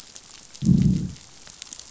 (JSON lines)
{"label": "biophony, growl", "recorder": "SoundTrap 500"}